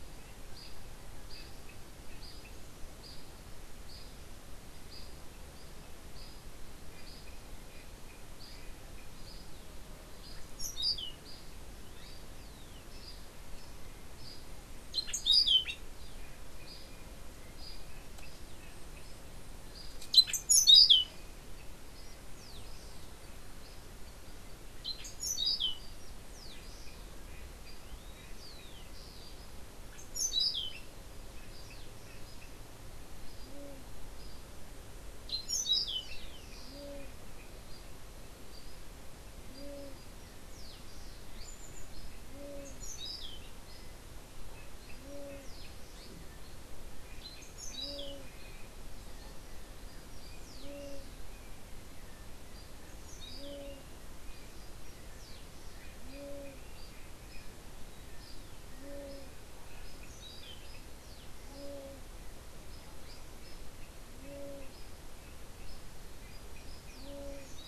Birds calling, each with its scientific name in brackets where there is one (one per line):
unidentified bird
Orange-billed Nightingale-Thrush (Catharus aurantiirostris)